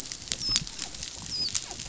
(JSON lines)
{"label": "biophony, dolphin", "recorder": "SoundTrap 500"}